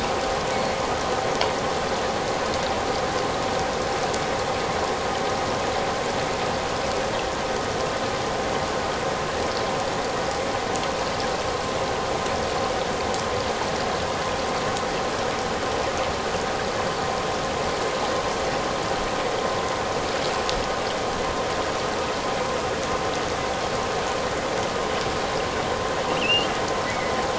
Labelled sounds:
26.2	27.2	killer whale, offshore, 1.9 to 3.2 kHz

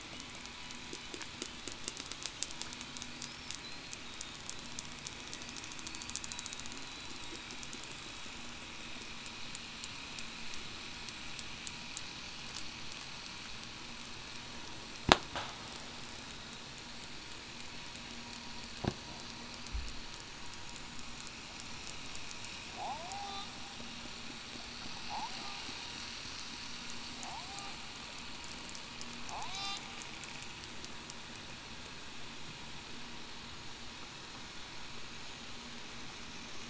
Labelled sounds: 4.1	4.4	killer whale, southern resident, 3.6 to 3.8 kHz
22.9	23.5	killer whale, southern resident, 0.58 to 0.84 kHz
27.4	27.7	killer whale, southern resident, 0.61 to 0.82 kHz
29.4	29.8	killer whale, southern resident, 0.66 to 0.82 kHz

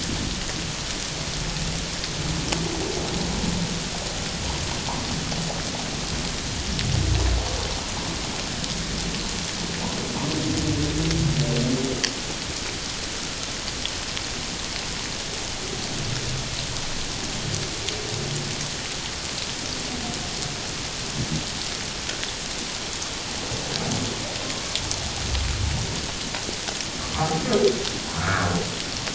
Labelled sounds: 24.4	24.8	humpback whale, 1.0 to 1.2 kHz
27.2	27.4	humpback whale, 0.78 to 0.84 kHz
28.2	28.5	humpback whale, 1.1 to 1.8 kHz

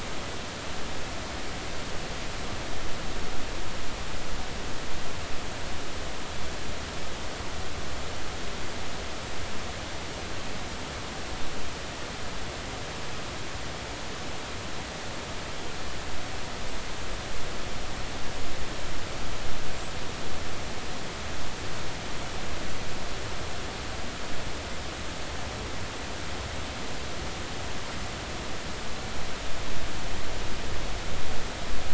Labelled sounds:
19.8	20.3	small unidentified odontocete, 7.6 to 8.0 kHz

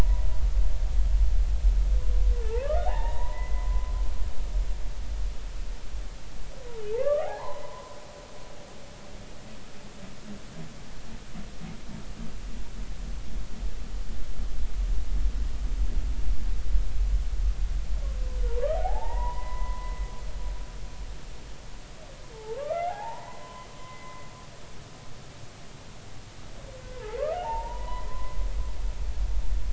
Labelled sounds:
2.5	3.9	humpback whale, 0.80 to 2.0 kHz
7.0	8.0	humpback whale, 0.80 to 4.3 kHz
18.5	19.9	humpback whale, 0.80 to 2.1 kHz
22.3	24.2	humpback whale, 0.80 to 3.3 kHz
27.3	28.4	humpback whale, 0.80 to 3.0 kHz

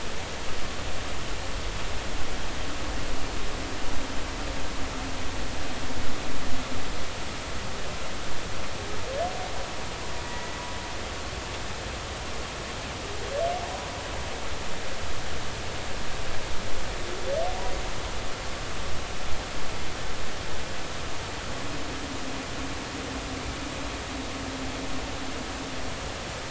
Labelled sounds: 10.2	10.6	humpback whale, 1.9 to 2.0 kHz

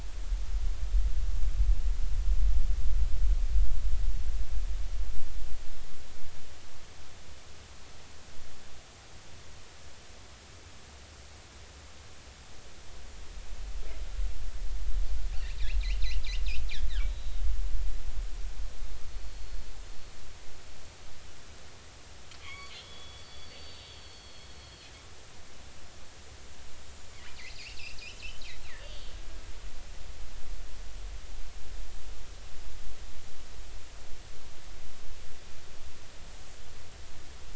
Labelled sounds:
19.1	19.6	killer whale, northern resident, 4.3 to 4.4 kHz
22.4	24.9	killer whale, northern resident, A clan, AA subclan, A01 pod, call N11, 1.0 to 4.6 kHz
27.6	28.0	killer whale, northern resident, 2.3 to 2.9 kHz
28.8	29.1	killer whale, northern resident, 2.8 to 4.8 kHz

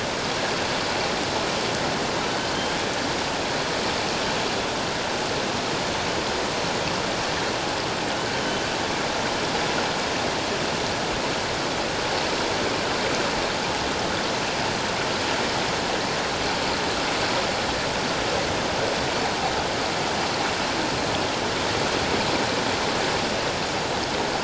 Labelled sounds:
8.4	8.7	humpback whale, 3.0 to 3.1 kHz

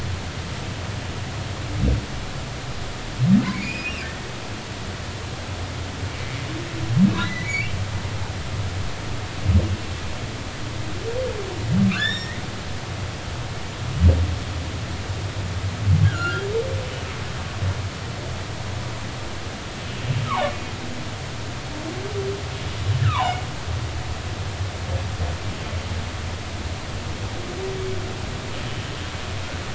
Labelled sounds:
3.5	4.3	humpback whale, 1.5 to 5.1 kHz
7.1	7.7	humpback whale, 1.9 to 4.0 kHz
11.9	12.4	humpback whale, 1.1 to 5.6 kHz
16.0	16.5	humpback whale, 1.3 to 2.9 kHz
20.3	20.5	humpback whale, 0.80 to 1.3 kHz
23.0	23.3	humpback whale, 0.80 to 1.6 kHz

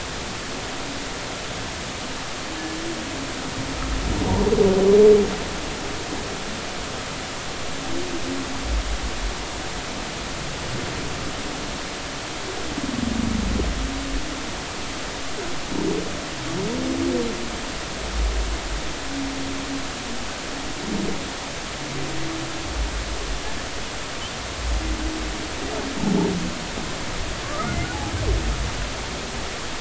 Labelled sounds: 27.4	27.9	humpback whale, 1.0 to 2.2 kHz

